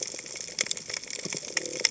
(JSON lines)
{"label": "biophony", "recorder": "HydroMoth"}